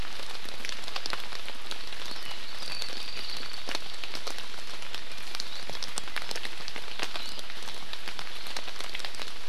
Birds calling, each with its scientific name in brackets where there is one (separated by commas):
Apapane (Himatione sanguinea)